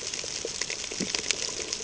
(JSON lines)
{"label": "ambient", "recorder": "HydroMoth"}